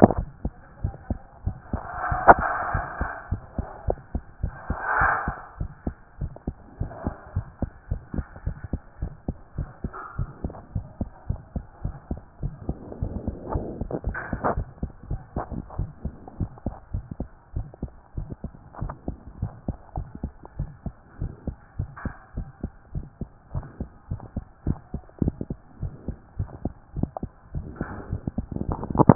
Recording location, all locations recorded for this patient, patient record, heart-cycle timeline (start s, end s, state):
tricuspid valve (TV)
aortic valve (AV)+pulmonary valve (PV)+tricuspid valve (TV)+mitral valve (MV)
#Age: Child
#Sex: Female
#Height: 113.0 cm
#Weight: 21.2 kg
#Pregnancy status: False
#Murmur: Absent
#Murmur locations: nan
#Most audible location: nan
#Systolic murmur timing: nan
#Systolic murmur shape: nan
#Systolic murmur grading: nan
#Systolic murmur pitch: nan
#Systolic murmur quality: nan
#Diastolic murmur timing: nan
#Diastolic murmur shape: nan
#Diastolic murmur grading: nan
#Diastolic murmur pitch: nan
#Diastolic murmur quality: nan
#Outcome: Abnormal
#Campaign: 2014 screening campaign
0.00	3.15	unannotated
3.15	3.30	diastole
3.30	3.42	S1
3.42	3.56	systole
3.56	3.66	S2
3.66	3.86	diastole
3.86	3.98	S1
3.98	4.14	systole
4.14	4.22	S2
4.22	4.42	diastole
4.42	4.54	S1
4.54	4.68	systole
4.68	4.78	S2
4.78	5.00	diastole
5.00	5.12	S1
5.12	5.26	systole
5.26	5.36	S2
5.36	5.58	diastole
5.58	5.70	S1
5.70	5.86	systole
5.86	5.94	S2
5.94	6.20	diastole
6.20	6.32	S1
6.32	6.46	systole
6.46	6.56	S2
6.56	6.80	diastole
6.80	6.92	S1
6.92	7.04	systole
7.04	7.14	S2
7.14	7.34	diastole
7.34	7.46	S1
7.46	7.60	systole
7.60	7.70	S2
7.70	7.90	diastole
7.90	8.02	S1
8.02	8.14	systole
8.14	8.26	S2
8.26	8.46	diastole
8.46	8.56	S1
8.56	8.72	systole
8.72	8.80	S2
8.80	9.00	diastole
9.00	9.12	S1
9.12	9.26	systole
9.26	9.36	S2
9.36	9.56	diastole
9.56	9.68	S1
9.68	9.82	systole
9.82	9.92	S2
9.92	10.18	diastole
10.18	10.30	S1
10.30	10.44	systole
10.44	10.52	S2
10.52	10.74	diastole
10.74	10.86	S1
10.86	11.00	systole
11.00	11.10	S2
11.10	11.28	diastole
11.28	11.40	S1
11.40	11.54	systole
11.54	11.64	S2
11.64	11.84	diastole
11.84	11.96	S1
11.96	12.10	systole
12.10	12.20	S2
12.20	12.42	diastole
12.42	12.54	S1
12.54	12.68	systole
12.68	12.76	S2
12.76	13.00	diastole
13.00	13.14	S1
13.14	13.26	systole
13.26	13.36	S2
13.36	13.54	diastole
13.54	13.64	S1
13.64	13.78	systole
13.78	13.90	S2
13.90	14.06	diastole
14.06	14.16	S1
14.16	14.30	systole
14.30	14.40	S2
14.40	14.54	diastole
14.54	14.66	S1
14.66	14.82	systole
14.82	14.90	S2
14.90	15.10	diastole
15.10	15.20	S1
15.20	15.36	systole
15.36	15.46	S2
15.46	15.78	diastole
15.78	15.90	S1
15.90	16.04	systole
16.04	16.14	S2
16.14	16.40	diastole
16.40	16.50	S1
16.50	16.66	systole
16.66	16.74	S2
16.74	16.92	diastole
16.92	17.04	S1
17.04	17.18	systole
17.18	17.28	S2
17.28	17.54	diastole
17.54	17.68	S1
17.68	17.82	systole
17.82	17.90	S2
17.90	18.16	diastole
18.16	18.28	S1
18.28	18.44	systole
18.44	18.52	S2
18.52	18.80	diastole
18.80	18.94	S1
18.94	19.08	systole
19.08	19.16	S2
19.16	19.40	diastole
19.40	19.52	S1
19.52	19.68	systole
19.68	19.76	S2
19.76	19.96	diastole
19.96	20.08	S1
20.08	20.22	systole
20.22	20.32	S2
20.32	20.58	diastole
20.58	20.70	S1
20.70	20.84	systole
20.84	20.94	S2
20.94	21.20	diastole
21.20	21.32	S1
21.32	21.46	systole
21.46	21.56	S2
21.56	21.78	diastole
21.78	21.90	S1
21.90	22.04	systole
22.04	22.14	S2
22.14	22.36	diastole
22.36	22.48	S1
22.48	22.62	systole
22.62	22.72	S2
22.72	22.94	diastole
22.94	23.06	S1
23.06	23.20	systole
23.20	23.28	S2
23.28	23.54	diastole
23.54	23.66	S1
23.66	23.80	systole
23.80	23.88	S2
23.88	24.10	diastole
24.10	24.20	S1
24.20	24.36	systole
24.36	24.44	S2
24.44	24.66	diastole
24.66	24.78	S1
24.78	24.94	systole
24.94	25.02	S2
25.02	25.22	diastole
25.22	25.34	S1
25.34	25.48	systole
25.48	25.58	S2
25.58	25.82	diastole
25.82	25.94	S1
25.94	26.06	systole
26.06	26.16	S2
26.16	26.38	diastole
26.38	26.50	S1
26.50	26.64	systole
26.64	26.74	S2
26.74	26.96	diastole
26.96	27.10	S1
27.10	27.22	systole
27.22	27.30	S2
27.30	27.54	diastole
27.54	27.66	S1
27.66	27.80	systole
27.80	27.88	S2
27.88	28.10	diastole
28.10	28.22	S1
28.22	28.36	systole
28.36	28.46	S2
28.46	28.66	diastole
28.66	28.72	S1
28.72	29.15	unannotated